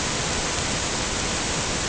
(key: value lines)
label: ambient
recorder: HydroMoth